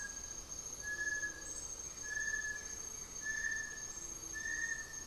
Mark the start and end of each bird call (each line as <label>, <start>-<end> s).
Blue-gray Saltator (Saltator coerulescens), 1.5-3.9 s